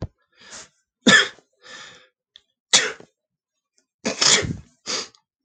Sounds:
Sneeze